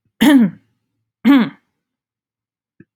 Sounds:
Throat clearing